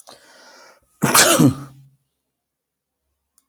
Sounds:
Sneeze